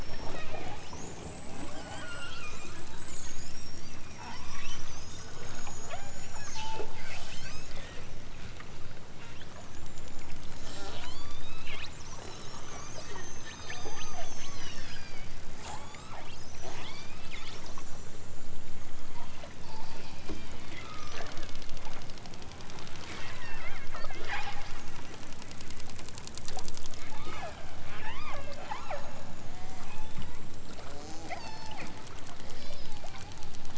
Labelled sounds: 1.8	2.7	killer whale, southern Alaska resident, 0.46 to 3.5 kHz
4.1	4.9	killer whale, southern Alaska resident, 0.55 to 6.2 kHz
5.8	6.3	killer whale, southern Alaska resident, 0.39 to 4.3 kHz
7.0	7.8	killer whale, southern Alaska resident, 1.6 to 8.0 kHz
10.6	11.6	killer whale, southern Alaska resident, 0.37 to 8.0 kHz
13.1	16.2	killer whale, southern Alaska resident, 0.46 to 8.0 kHz
16.5	17.3	killer whale, southern Alaska resident, 0.51 to 6.7 kHz
20.7	21.3	killer whale, southern Alaska resident, 0.77 to 4.0 kHz
23.3	23.8	killer whale, southern Alaska resident, 0.56 to 3.1 kHz
24.1	24.8	killer whale, southern Alaska resident, 0.37 to 5.4 kHz
27.0	31.9	killer whale, southern Alaska resident, 0.32 to 8.0 kHz
32.4	32.9	killer whale, southern Alaska resident, 1.3 to 6.0 kHz

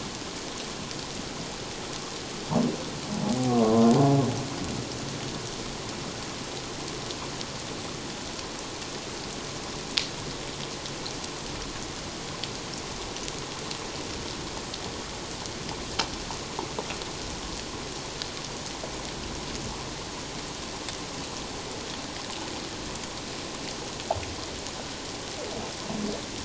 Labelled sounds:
3.2	3.6	humpback whale, 0.78 to 0.88 kHz

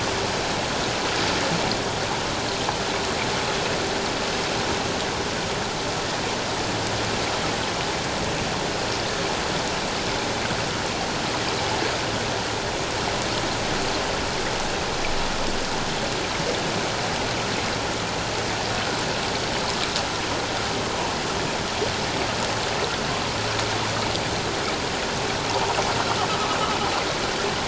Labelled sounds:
25.5	25.8	humpback whale, 0.81 to 1.0 kHz

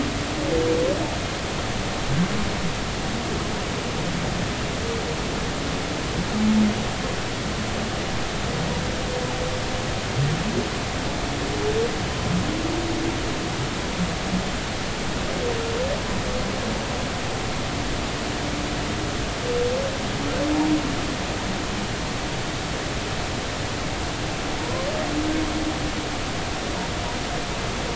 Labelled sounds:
24.6	24.9	humpback whale, 0.90 to 1.1 kHz

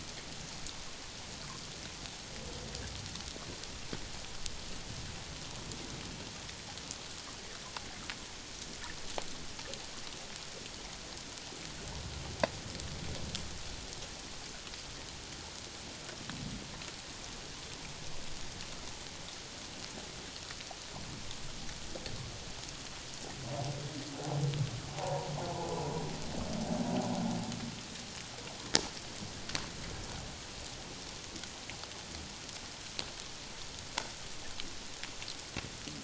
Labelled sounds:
24.9	25.3	humpback whale, 0.78 to 1.1 kHz

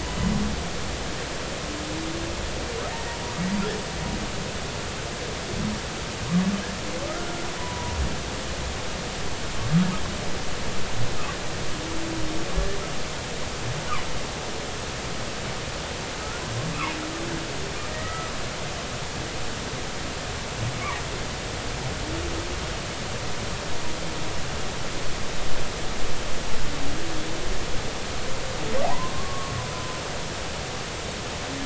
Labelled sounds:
2.9	3.2	humpback whale, 1.8 to 1.9 kHz
7.6	7.9	humpback whale, 0.93 to 1.0 kHz
17.9	18.3	humpback whale, 1.2 to 2.0 kHz
28.8	29.5	humpback whale, 0.80 to 1.2 kHz

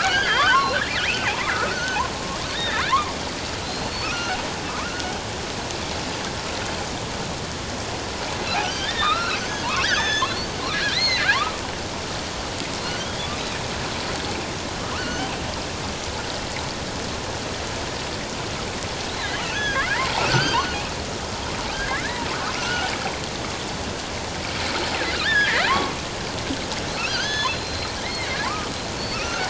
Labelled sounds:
1.2	2.0	killer whale, offshore, 0.78 to 1.6 kHz
2.5	3.0	killer whale, offshore, 1.2 to 3.8 kHz
3.6	4.4	killer whale, offshore, 1.2 to 4.6 kHz
4.7	5.1	killer whale, offshore, 1.0 to 1.6 kHz
8.4	10.4	killer whale, offshore, 0.88 to 6.5 kHz
10.9	11.6	killer whale, offshore, 0.78 to 4.4 kHz
14.9	15.3	killer whale, offshore, 1.4 to 3.2 kHz
19.2	20.6	killer whale, offshore, 1.1 to 6.3 kHz
21.7	22.9	killer whale, offshore, 1.3 to 6.3 kHz
25.2	26.0	killer whale, offshore, 0.88 to 3.8 kHz
27.0	28.7	killer whale, offshore, 0.84 to 6.5 kHz
29.1	29.4	killer whale, offshore, 1.2 to 1.6 kHz

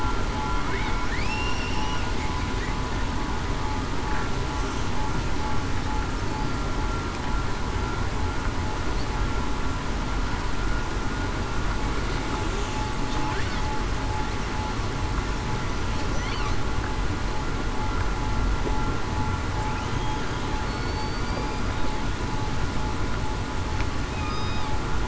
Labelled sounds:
0.4	1.7	killer whale, southern resident, 2.1 to 2.9 kHz
20.6	21.7	killer whale, southern resident, 2.3 to 4.9 kHz
24.1	24.6	killer whale, southern resident, 3.6 to 5.0 kHz

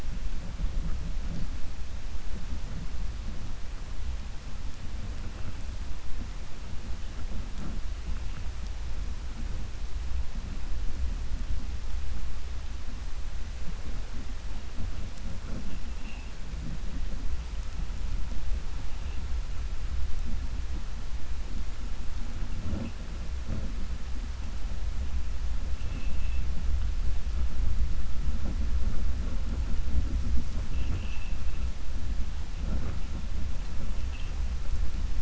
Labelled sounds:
25.8	26.4	vessel noise, 2.3 to 3.5 kHz
30.6	31.4	vessel noise, 2.2 to 3.3 kHz

